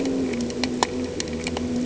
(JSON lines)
{"label": "anthrophony, boat engine", "recorder": "HydroMoth"}